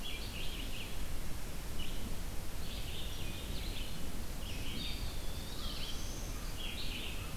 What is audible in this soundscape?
Red-eyed Vireo, Eastern Wood-Pewee, Black-throated Blue Warbler, American Crow